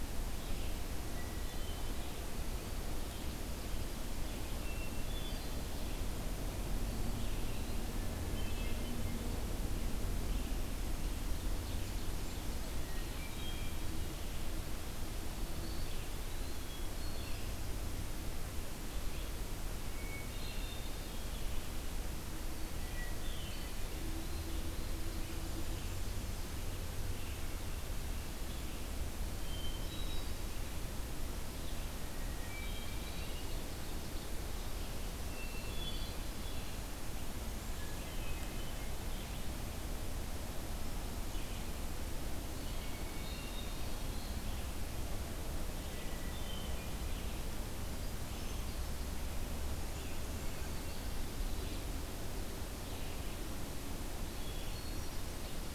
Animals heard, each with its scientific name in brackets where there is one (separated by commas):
Ovenbird (Seiurus aurocapilla), Eastern Wood-Pewee (Contopus virens), Hermit Thrush (Catharus guttatus), Red-eyed Vireo (Vireo olivaceus)